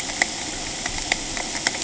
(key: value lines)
label: ambient
recorder: HydroMoth